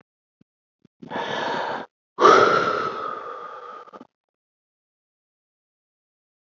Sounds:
Sigh